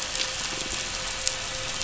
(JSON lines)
{"label": "anthrophony, boat engine", "recorder": "SoundTrap 500"}
{"label": "biophony", "recorder": "SoundTrap 500"}